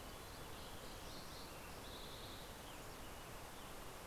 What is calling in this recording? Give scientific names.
Zonotrichia leucophrys, Poecile gambeli, Pipilo maculatus, Piranga ludoviciana